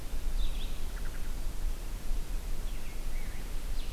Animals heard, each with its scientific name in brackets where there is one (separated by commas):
Red-eyed Vireo (Vireo olivaceus)